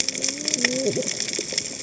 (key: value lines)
label: biophony, cascading saw
recorder: HydroMoth